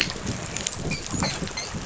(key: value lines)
label: biophony, dolphin
recorder: SoundTrap 500